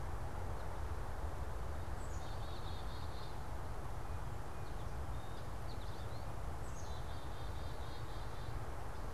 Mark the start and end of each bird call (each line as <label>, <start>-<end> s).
Black-capped Chickadee (Poecile atricapillus), 0.0-9.1 s
American Goldfinch (Spinus tristis), 4.6-6.3 s